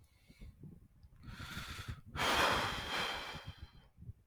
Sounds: Sigh